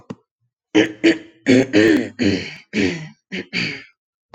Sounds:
Throat clearing